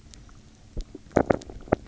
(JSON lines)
{"label": "anthrophony, boat engine", "recorder": "SoundTrap 300"}